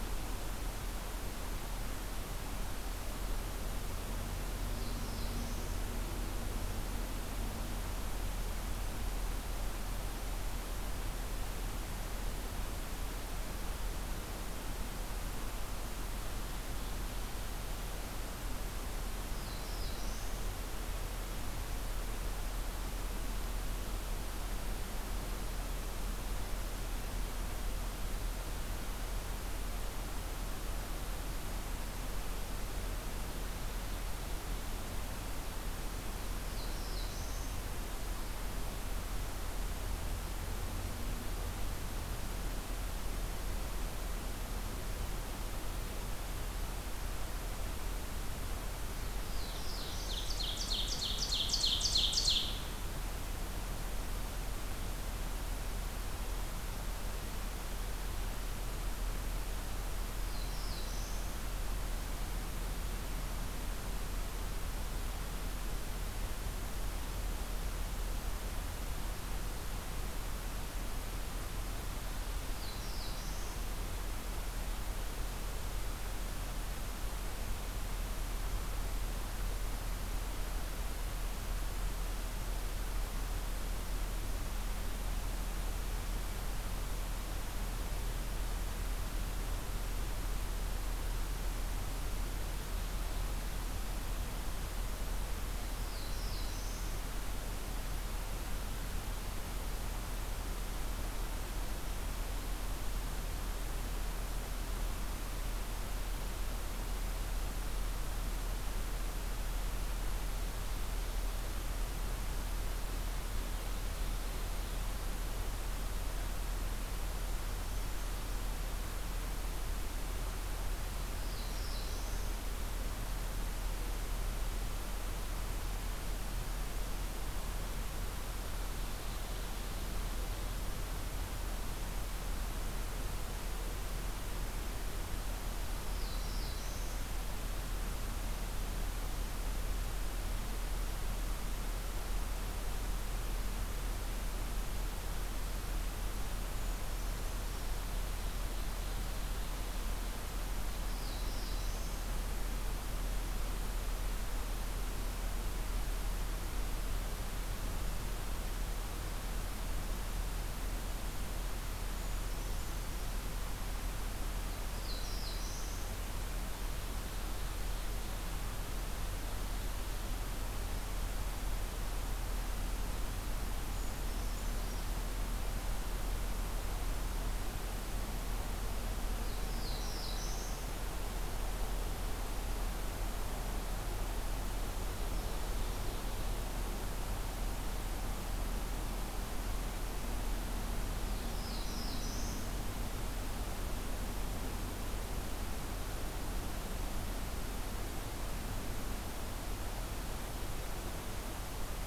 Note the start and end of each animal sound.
4.5s-5.8s: Black-throated Blue Warbler (Setophaga caerulescens)
19.2s-20.4s: Black-throated Blue Warbler (Setophaga caerulescens)
36.0s-37.6s: Black-throated Blue Warbler (Setophaga caerulescens)
49.3s-50.4s: Black-throated Blue Warbler (Setophaga caerulescens)
50.1s-52.6s: Ovenbird (Seiurus aurocapilla)
60.1s-61.3s: Black-throated Blue Warbler (Setophaga caerulescens)
72.5s-73.6s: Black-throated Blue Warbler (Setophaga caerulescens)
95.4s-97.0s: Black-throated Blue Warbler (Setophaga caerulescens)
120.8s-122.4s: Black-throated Blue Warbler (Setophaga caerulescens)
128.6s-130.5s: Ovenbird (Seiurus aurocapilla)
135.9s-137.0s: Black-throated Blue Warbler (Setophaga caerulescens)
146.6s-147.7s: Brown Creeper (Certhia americana)
147.7s-149.4s: Ovenbird (Seiurus aurocapilla)
150.7s-152.0s: Black-throated Blue Warbler (Setophaga caerulescens)
161.9s-163.0s: Brown Creeper (Certhia americana)
164.5s-166.0s: Black-throated Blue Warbler (Setophaga caerulescens)
166.5s-168.2s: Ovenbird (Seiurus aurocapilla)
173.7s-175.0s: Brown Creeper (Certhia americana)
179.2s-180.7s: Black-throated Blue Warbler (Setophaga caerulescens)
184.9s-186.4s: Ovenbird (Seiurus aurocapilla)
191.0s-192.5s: Black-throated Blue Warbler (Setophaga caerulescens)

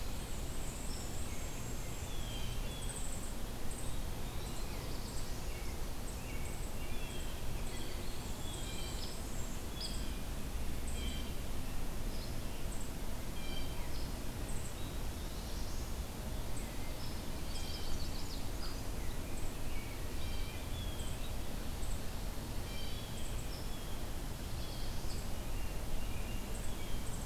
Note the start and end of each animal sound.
0.0s-2.3s: Black-and-white Warbler (Mniotilta varia)
0.7s-2.7s: American Robin (Turdus migratorius)
0.8s-1.1s: Hairy Woodpecker (Dryobates villosus)
1.8s-3.1s: Blue Jay (Cyanocitta cristata)
3.7s-4.8s: Eastern Wood-Pewee (Contopus virens)
4.5s-5.7s: Black-throated Blue Warbler (Setophaga caerulescens)
5.3s-8.1s: American Robin (Turdus migratorius)
6.8s-8.0s: Blue Jay (Cyanocitta cristata)
7.3s-9.1s: Eastern Wood-Pewee (Contopus virens)
8.0s-9.7s: Black-and-white Warbler (Mniotilta varia)
8.5s-13.9s: Blue Jay (Cyanocitta cristata)
8.8s-9.1s: Hairy Woodpecker (Dryobates villosus)
9.7s-10.0s: Hairy Woodpecker (Dryobates villosus)
12.1s-12.3s: Hairy Woodpecker (Dryobates villosus)
13.9s-14.1s: Hairy Woodpecker (Dryobates villosus)
14.7s-15.5s: Eastern Wood-Pewee (Contopus virens)
14.8s-16.0s: Black-throated Blue Warbler (Setophaga caerulescens)
16.9s-17.1s: Hairy Woodpecker (Dryobates villosus)
17.2s-18.0s: Blue Jay (Cyanocitta cristata)
17.4s-18.5s: Chestnut-sided Warbler (Setophaga pensylvanica)
18.5s-18.7s: Hairy Woodpecker (Dryobates villosus)
18.9s-20.7s: American Robin (Turdus migratorius)
20.1s-27.2s: Blue Jay (Cyanocitta cristata)
23.4s-23.6s: Hairy Woodpecker (Dryobates villosus)
24.3s-25.4s: Black-throated Blue Warbler (Setophaga caerulescens)
25.1s-25.2s: Hairy Woodpecker (Dryobates villosus)
25.3s-27.1s: American Robin (Turdus migratorius)

